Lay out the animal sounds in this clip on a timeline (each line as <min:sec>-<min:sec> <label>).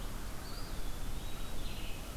0:00.0-0:02.2 Red-eyed Vireo (Vireo olivaceus)
0:00.2-0:01.6 Eastern Wood-Pewee (Contopus virens)